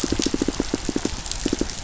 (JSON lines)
{"label": "biophony, pulse", "recorder": "SoundTrap 500"}